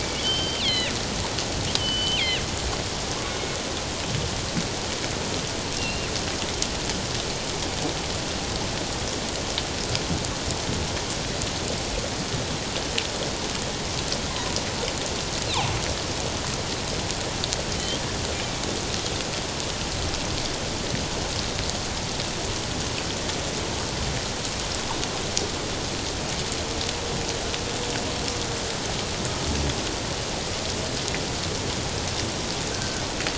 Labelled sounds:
0.0	0.9	killer whale, northern resident, G clan, 1.8 to 5.5 kHz
1.8	2.4	killer whale, northern resident, G clan, 1.9 to 3.2 kHz
5.8	6.1	killer whale, northern resident, G clan, 2.5 to 2.8 kHz
32.7	33.0	killer whale, northern resident, G clan, 1.4 to 1.7 kHz

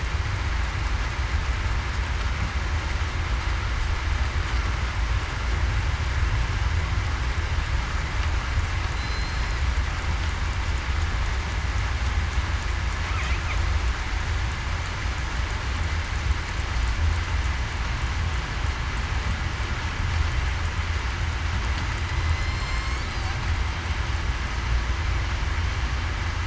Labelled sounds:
8.9	9.5	killer whale, southern resident, 4.0 to 4.2 kHz
22.2	23.0	killer whale, southern resident, 2.1 to 7.7 kHz

